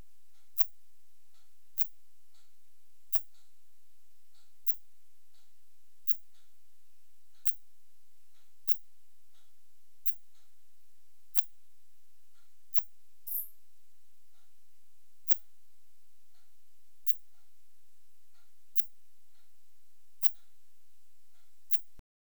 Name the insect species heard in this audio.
Phaneroptera falcata